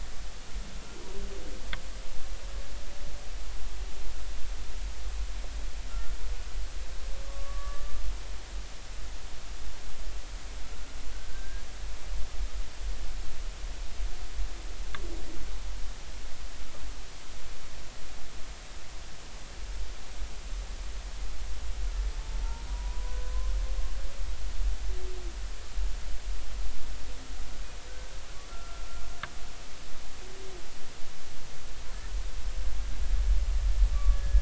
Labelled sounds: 5.9	6.1	humpback whale, 1.3 to 1.4 kHz
7.2	8.0	humpback whale, 1.1 to 1.9 kHz
11.1	11.6	humpback whale, 1.5 to 1.7 kHz
22.4	23.5	humpback whale, 0.86 to 1.2 kHz
28.5	28.8	humpback whale, 1.3 to 1.4 kHz
33.9	34.4	humpback whale, 1.1 to 1.7 kHz

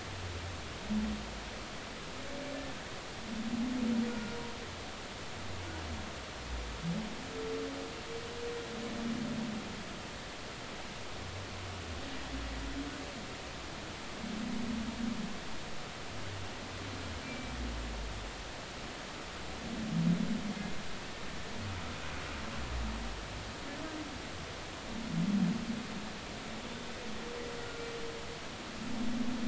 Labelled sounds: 4.1	4.4	humpback whale, 1.4 to 1.5 kHz
17.2	17.5	humpback whale, 2.3 to 2.4 kHz

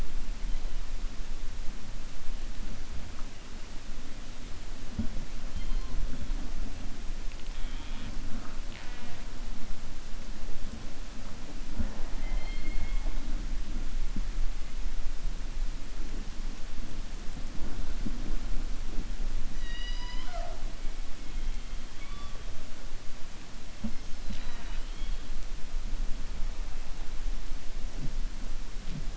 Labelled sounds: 8.6	9.2	killer whale, 0.75 to 4.6 kHz
19.5	20.6	killer whale, 0.61 to 6.0 kHz
24.2	25.2	killer whale, 0.13 to 5.6 kHz

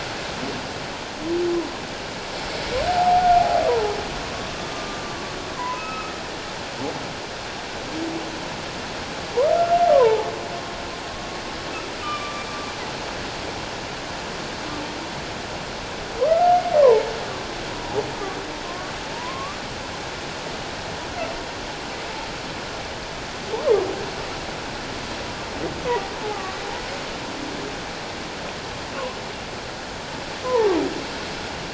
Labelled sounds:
2.9	3.6	humpback whale, 0.78 to 0.91 kHz
4.5	6.1	humpback whale, 0.94 to 5.2 kHz
9.9	10.3	humpback whale, 0.81 to 1.2 kHz
12.0	12.4	humpback whale, 1.1 to 2.5 kHz
16.3	16.6	humpback whale, 1.2 to 1.4 kHz
18.6	19.6	humpback whale, 0.91 to 1.2 kHz
26.3	26.6	humpback whale, 1.1 to 1.3 kHz
30.4	30.7	humpback whale, 0.81 to 1.1 kHz

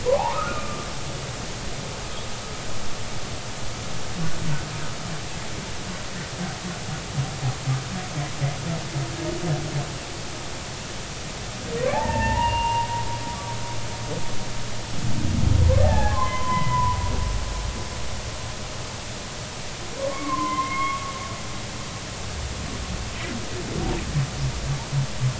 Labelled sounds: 0.1	0.9	humpback whale, 0.80 to 1.5 kHz
11.9	12.9	humpback whale, 0.80 to 2.9 kHz
15.8	17.0	humpback whale, 0.80 to 3.1 kHz
20.0	21.0	humpback whale, 0.96 to 2.3 kHz

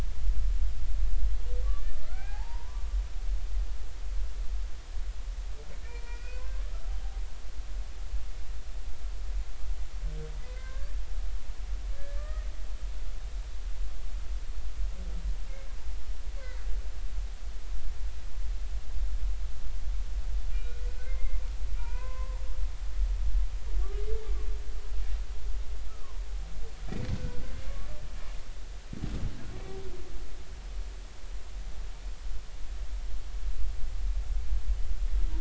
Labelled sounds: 1.7	2.8	humpback whale, 0.80 to 2.6 kHz
5.9	6.7	humpback whale, 0.90 to 5.0 kHz
10.4	11.0	humpback whale, 1.5 to 2.2 kHz
12.0	12.5	humpback whale, 1.1 to 2.0 kHz
20.5	22.4	humpback whale, 0.90 to 3.9 kHz
25.9	26.2	humpback whale, 0.90 to 1.4 kHz
27.1	27.4	humpback whale, 1.4 to 1.6 kHz

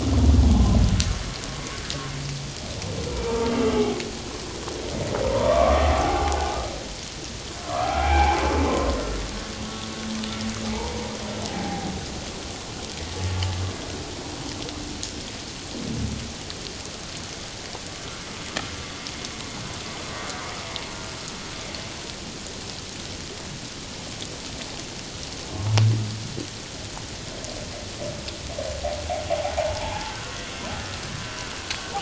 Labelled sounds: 5.3	6.6	humpback whale, 0.78 to 1.2 kHz
7.6	8.4	humpback whale, 0.78 to 2.4 kHz
10.7	11.9	humpback whale, 0.78 to 1.0 kHz
29.3	30.1	humpback whale, 0.78 to 1.1 kHz

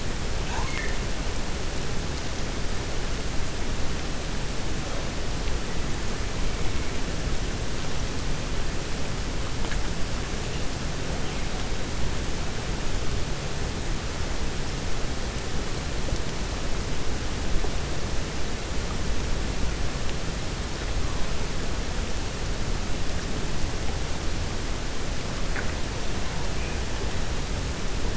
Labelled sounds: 0.4	1.0	killer whale, 0.74 to 3.0 kHz

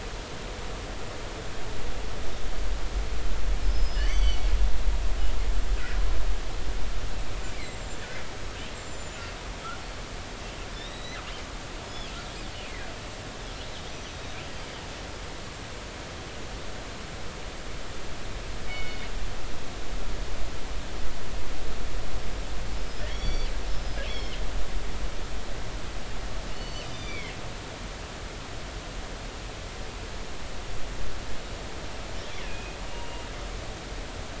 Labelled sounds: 3.6	4.5	killer whale, northern resident, G clan, GI subclan, call N23i, 2.0 to 7.8 kHz
7.5	8.1	killer whale, northern resident, G clan, GI subclan, call N25, 2.0 to 7.7 kHz
8.8	9.2	killer whale, northern resident, G clan, GI subclan, call N25, 6.9 to 7.6 kHz
10.7	11.2	killer whale, northern resident, G clan, GG subclan, call N28, 1.8 to 4.1 kHz
11.8	12.1	killer whale, northern resident, G clan, 5.0 to 5.2 kHz
13.9	14.4	killer whale, northern resident, G clan, call N23i, 3.7 to 6.0 kHz
18.7	19.0	killer whale, northern resident, G clan, GI subclan, call N24ii, 2.1 to 3.7 kHz
22.7	23.5	killer whale, northern resident, G clan, GI subclan, call N23i, 2.0 to 5.8 kHz
24.0	24.4	killer whale, northern resident, G clan, GI subclan, call N23i, 2.1 to 5.6 kHz
26.5	27.3	killer whale, northern resident, G clan, GI subclan, call N23i, 1.9 to 6.0 kHz
32.4	33.3	killer whale, northern resident, G clan, 2.4 to 2.9 kHz

